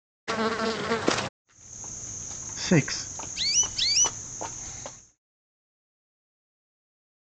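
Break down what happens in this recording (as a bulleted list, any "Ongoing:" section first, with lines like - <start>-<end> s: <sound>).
Ongoing:
- 1.44-5.2 s: you can hear a cricket, fading in and then fading out
Other sounds:
- 0.27-1.29 s: there is buzzing
- 2.6-3.02 s: someone says "six"
- 3.35-4.11 s: the sound of chirping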